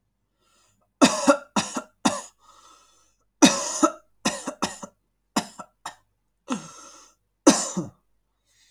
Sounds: Cough